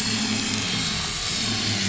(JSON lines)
{"label": "anthrophony, boat engine", "recorder": "SoundTrap 500"}